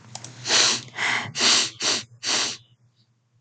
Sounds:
Sniff